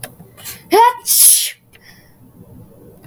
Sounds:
Sneeze